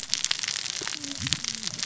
{"label": "biophony, cascading saw", "recorder": "SoundTrap 600 or HydroMoth"}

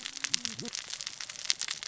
{"label": "biophony, cascading saw", "recorder": "SoundTrap 600 or HydroMoth"}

